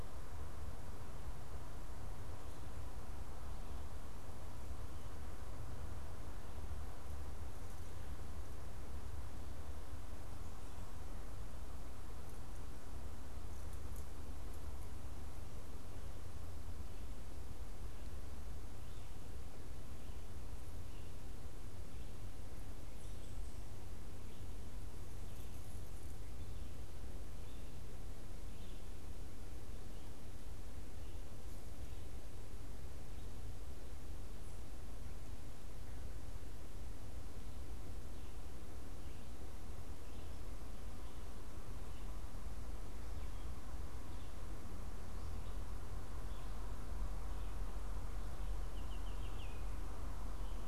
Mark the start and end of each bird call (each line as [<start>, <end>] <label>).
[48.52, 49.82] Baltimore Oriole (Icterus galbula)